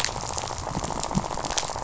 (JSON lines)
{"label": "biophony, rattle", "recorder": "SoundTrap 500"}